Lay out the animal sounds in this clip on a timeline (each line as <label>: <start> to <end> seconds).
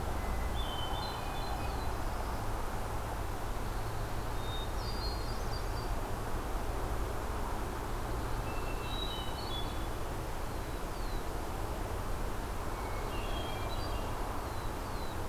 Hermit Thrush (Catharus guttatus): 0.0 to 1.7 seconds
Black-throated Blue Warbler (Setophaga caerulescens): 1.4 to 2.6 seconds
Hermit Thrush (Catharus guttatus): 4.3 to 6.0 seconds
Hermit Thrush (Catharus guttatus): 8.3 to 9.9 seconds
Black-throated Blue Warbler (Setophaga caerulescens): 10.4 to 11.3 seconds
Hermit Thrush (Catharus guttatus): 12.7 to 14.2 seconds
Black-throated Blue Warbler (Setophaga caerulescens): 14.2 to 15.3 seconds